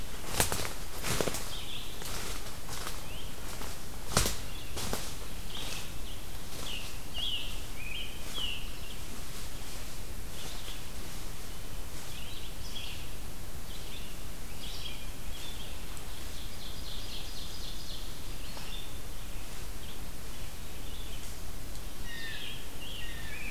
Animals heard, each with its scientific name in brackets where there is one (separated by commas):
Blue Jay (Cyanocitta cristata), Ovenbird (Seiurus aurocapilla), Red-eyed Vireo (Vireo olivaceus), Scarlet Tanager (Piranga olivacea)